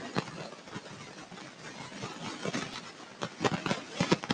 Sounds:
Throat clearing